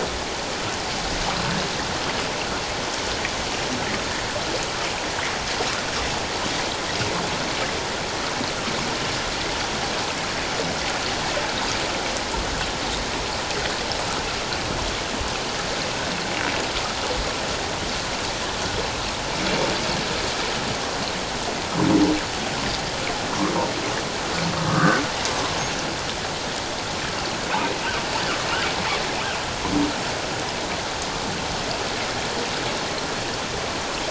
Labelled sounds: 24.7	25.0	humpback whale, 1.1 to 1.7 kHz

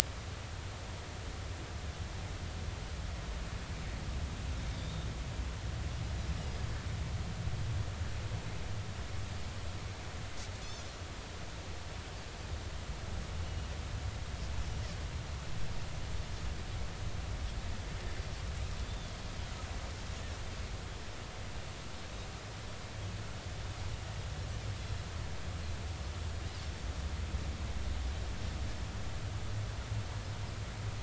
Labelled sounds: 4.8	5.1	Pacific white-sided dolphin, 3.4 to 3.8 kHz
10.6	10.9	Pacific white-sided dolphin, 3.3 to 3.6 kHz
13.5	13.7	Pacific white-sided dolphin, 2.8 to 3.0 kHz
18.8	19.1	Pacific white-sided dolphin, 3.4 to 3.7 kHz

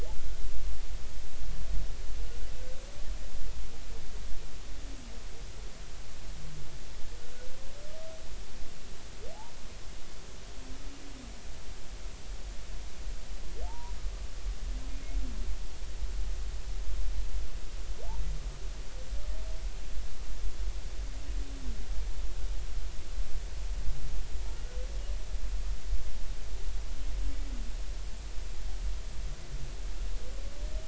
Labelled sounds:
13.7	14.0	humpback whale, 0.80 to 1.0 kHz

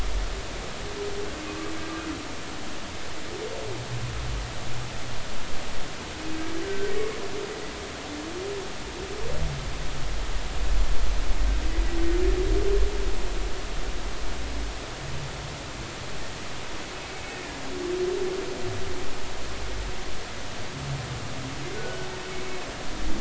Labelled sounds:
6.6	6.9	humpback whale, 1.5 to 1.6 kHz
21.8	22.1	humpback whale, 1.4 to 1.5 kHz

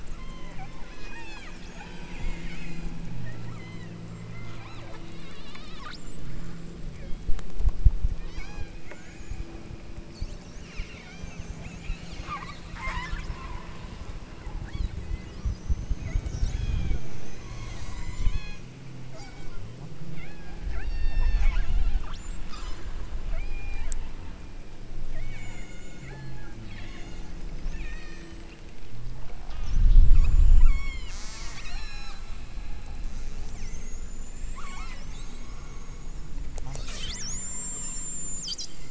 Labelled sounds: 0.1	4.6	killer whale, southern Alaska resident, 0.57 to 8.0 kHz
5.0	6.3	killer whale, southern Alaska resident, 0.84 to 8.0 kHz
6.9	7.4	killer whale, southern Alaska resident, 1.9 to 3.5 kHz
8.1	9.6	killer whale, southern Alaska resident, 0.57 to 8.0 kHz
10.6	12.1	killer whale, southern Alaska resident, 0.59 to 8.0 kHz
14.4	15.0	killer whale, southern Alaska resident, 0.68 to 5.2 kHz
15.9	18.7	killer whale, southern Alaska resident, 0.52 to 8.0 kHz
19.0	19.7	killer whale, southern Alaska resident, 0.55 to 8.0 kHz
20.2	22.1	killer whale, southern Alaska resident, 0.50 to 8.0 kHz
22.5	22.9	killer whale, southern Alaska resident, 0.84 to 8.0 kHz
23.2	23.9	killer whale, southern Alaska resident, 0.57 to 5.0 kHz
25.1	27.4	killer whale, southern Alaska resident, 0.62 to 8.0 kHz
27.7	28.4	killer whale, southern Alaska resident, 0.96 to 6.2 kHz
29.1	32.2	killer whale, southern Alaska resident, 0.43 to 8.0 kHz
33.1	35.1	killer whale, southern Alaska resident, 0.82 to 8.0 kHz

